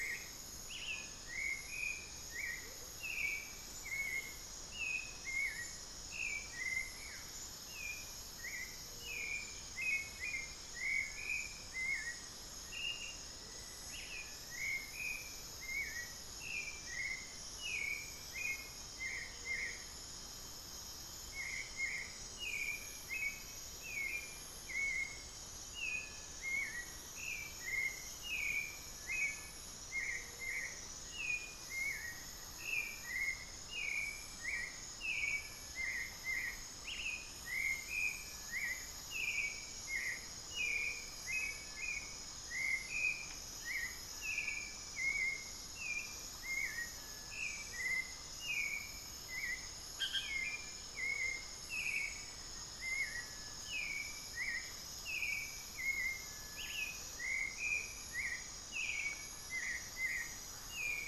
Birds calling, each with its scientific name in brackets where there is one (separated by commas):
Buff-throated Woodcreeper (Xiphorhynchus guttatus), Black-faced Antthrush (Formicarius analis), Amazonian Motmot (Momotus momota), Hauxwell's Thrush (Turdus hauxwelli), Cinereous Tinamou (Crypturellus cinereus)